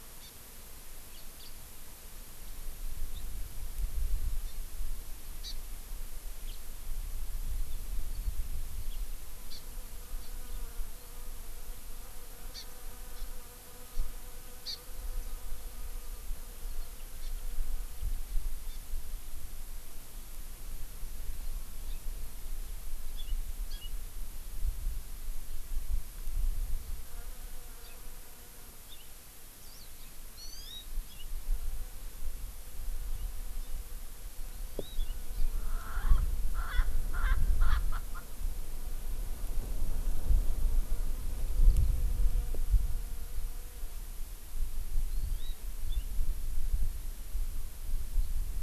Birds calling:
House Finch (Haemorhous mexicanus), Hawaii Amakihi (Chlorodrepanis virens), Erckel's Francolin (Pternistis erckelii)

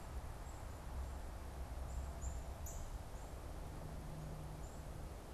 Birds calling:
Black-capped Chickadee (Poecile atricapillus), Northern Cardinal (Cardinalis cardinalis)

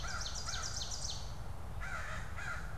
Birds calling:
American Crow (Corvus brachyrhynchos), Ovenbird (Seiurus aurocapilla)

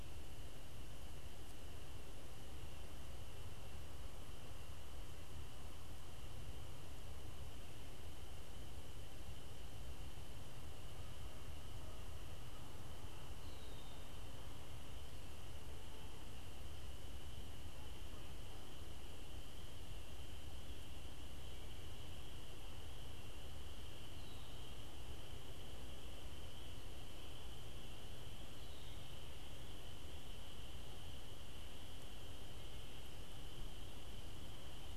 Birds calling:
Canada Goose (Branta canadensis), Red-winged Blackbird (Agelaius phoeniceus)

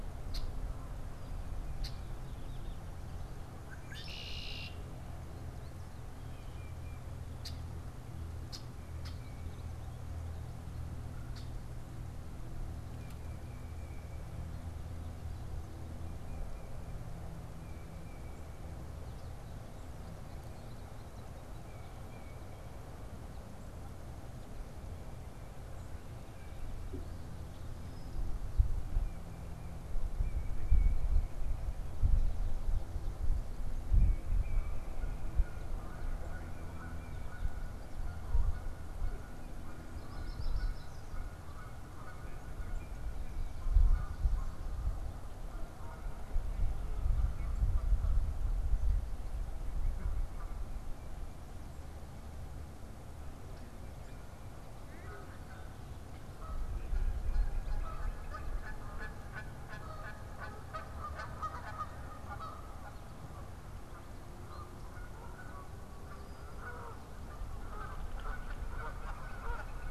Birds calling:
Tufted Titmouse (Baeolophus bicolor), Red-winged Blackbird (Agelaius phoeniceus), Northern Flicker (Colaptes auratus), unidentified bird, Canada Goose (Branta canadensis)

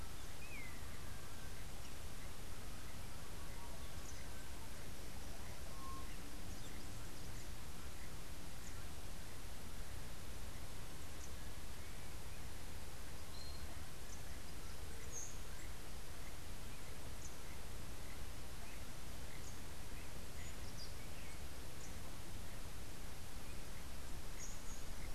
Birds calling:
Long-tailed Manakin (Chiroxiphia linearis), Buff-throated Saltator (Saltator maximus), Rufous-and-white Wren (Thryophilus rufalbus)

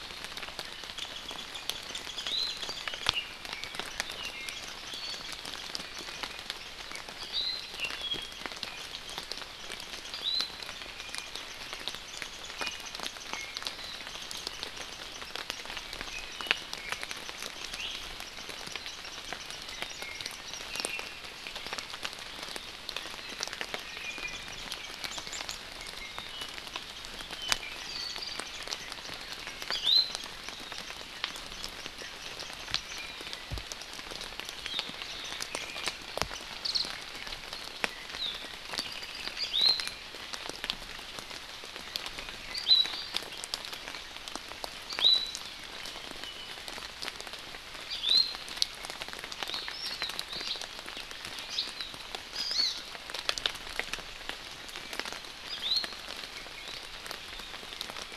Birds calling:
Iiwi (Drepanis coccinea), Hawaii Amakihi (Chlorodrepanis virens), Apapane (Himatione sanguinea)

